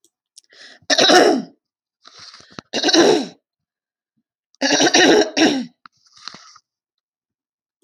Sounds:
Throat clearing